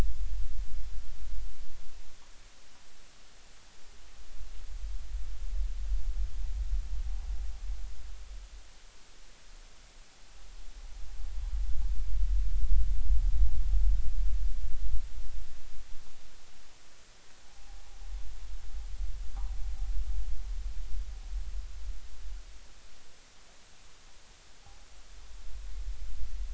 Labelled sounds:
17.4	17.8	noise likely from the mooring, 0.80 to 0.93 kHz

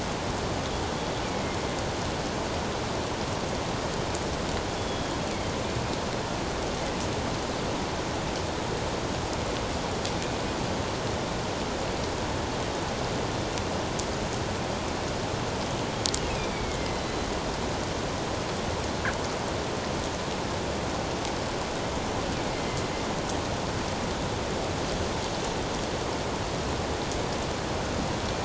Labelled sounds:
1.2	1.6	killer whale, northern resident, G clan, 2.0 to 2.4 kHz
4.7	5.2	killer whale, northern resident, G clan, 3.3 to 3.5 kHz
16.3	17.3	killer whale, northern resident, A clan, AA subclan, A04 pod, 2.0 to 4.2 kHz
22.5	22.8	killer whale, northern resident, A clan, AA subclan, A04 pod, 2.0 to 2.2 kHz

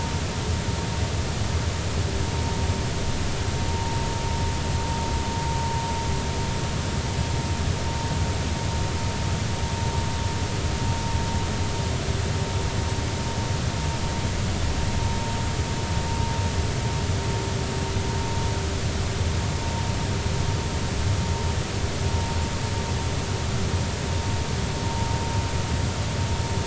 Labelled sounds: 3.7	4.0	vessel noise, 0.83 to 0.99 kHz

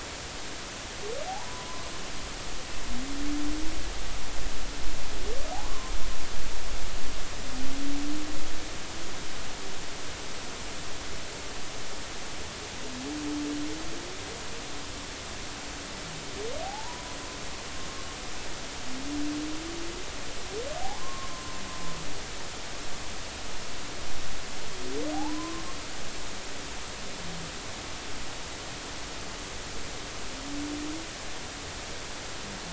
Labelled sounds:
1.5	1.8	humpback whale, 0.93 to 1.1 kHz
5.6	5.9	humpback whale, 0.96 to 1.2 kHz
16.6	17.2	humpback whale, 0.80 to 1.1 kHz
20.8	21.6	humpback whale, 0.80 to 1.1 kHz
25.1	25.6	humpback whale, 0.80 to 1.2 kHz

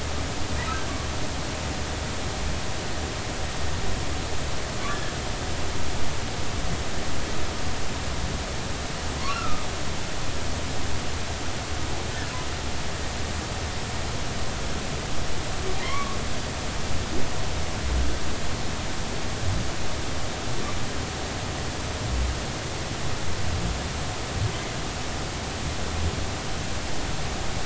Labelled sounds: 4.9	5.1	humpback whale, 1.6 to 1.8 kHz
9.3	9.6	humpback whale, 1.2 to 1.4 kHz
15.8	16.2	humpback whale, 0.96 to 2.3 kHz

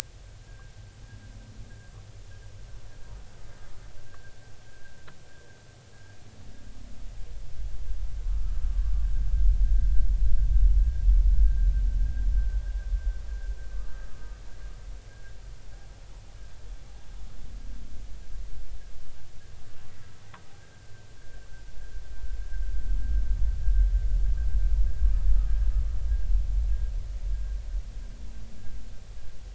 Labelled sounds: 4.1	4.3	humpback whale, 1.5 to 1.8 kHz
4.7	4.9	humpback whale, 1.5 to 1.7 kHz
8.3	8.6	humpback whale, 1.2 to 1.4 kHz
11.4	11.7	humpback whale, 1.5 to 1.7 kHz
13.7	14.0	humpback whale, 1.1 to 1.3 kHz

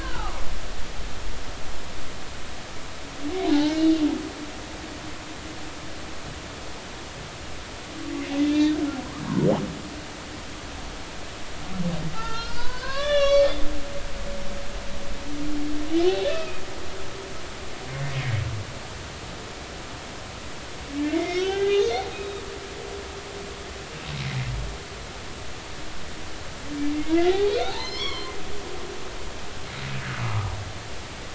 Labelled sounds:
0.0	0.6	humpback whale, 1.0 to 2.8 kHz
3.5	3.9	humpback whale, 1.4 to 2.9 kHz
8.4	8.8	humpback whale, 1.7 to 3.7 kHz
12.1	13.5	humpback whale, 0.83 to 6.4 kHz
16.3	16.6	humpback whale, 2.4 to 2.7 kHz
21.0	22.0	humpback whale, 0.80 to 4.4 kHz
26.9	28.3	humpback whale, 0.80 to 5.8 kHz
30.2	30.5	humpback whale, 0.96 to 1.3 kHz

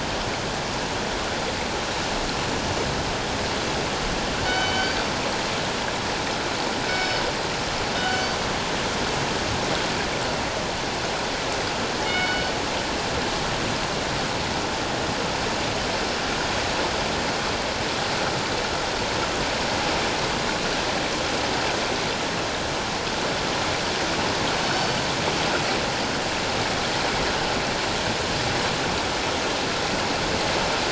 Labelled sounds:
4.5	5.0	killer whale, northern resident, G clan, 2.2 to 6.1 kHz
6.9	7.3	killer whale, northern resident, G clan, 3.7 to 5.3 kHz
8.0	8.3	killer whale, northern resident, G clan, 1.4 to 3.1 kHz
12.1	12.5	killer whale, northern resident, G clan, 1.4 to 4.5 kHz
24.6	24.9	killer whale, northern resident, G clan, 4.4 to 4.7 kHz

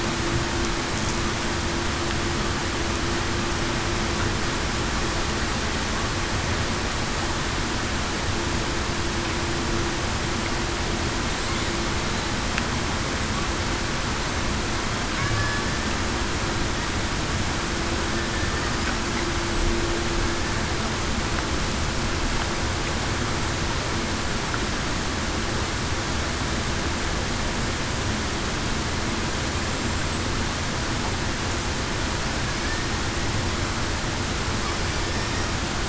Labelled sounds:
15.2	15.6	killer whale, Bigg's (transient), 1.6 to 1.8 kHz

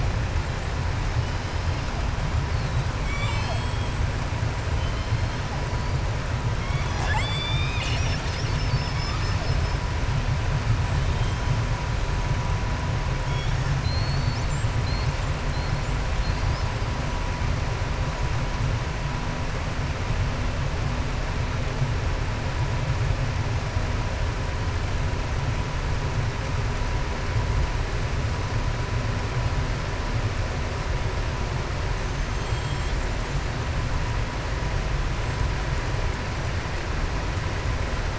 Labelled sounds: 13.7	14.7	killer whale, southern resident, 3.9 to 7.6 kHz
16.1	16.7	killer whale, southern resident, 3.3 to 5.3 kHz
31.9	33.1	killer whale, southern resident, 3.1 to 7.6 kHz

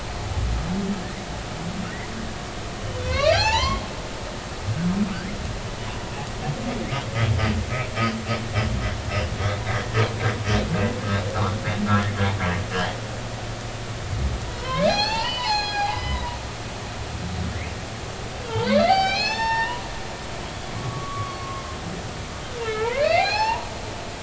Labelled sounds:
3.0	3.8	humpback whale, 0.80 to 7.3 kHz
11.3	11.6	humpback whale, 0.80 to 1.5 kHz
11.9	12.2	humpback whale, 1.2 to 2.2 kHz
14.5	16.4	humpback whale, 0.80 to 6.9 kHz
18.4	19.8	humpback whale, 0.80 to 6.4 kHz
20.8	21.8	humpback whale, 1.0 to 1.2 kHz
22.6	23.7	humpback whale, 0.80 to 5.5 kHz

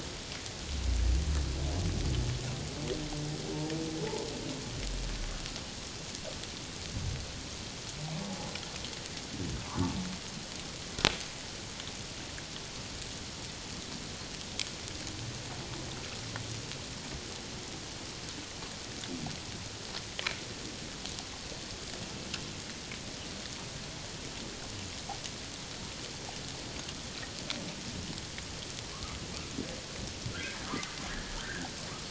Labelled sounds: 9.7	9.9	humpback whale, 0.84 to 1.2 kHz
28.9	29.2	humpback whale, 1.0 to 1.3 kHz
30.3	30.6	humpback whale, 1.3 to 1.8 kHz
31.1	31.7	humpback whale, 1.3 to 2.0 kHz

